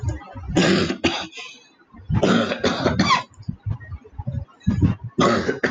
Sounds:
Cough